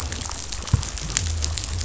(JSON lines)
{"label": "biophony", "recorder": "SoundTrap 500"}